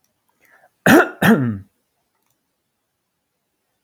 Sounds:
Cough